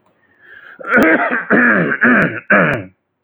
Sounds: Throat clearing